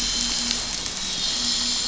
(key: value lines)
label: anthrophony, boat engine
recorder: SoundTrap 500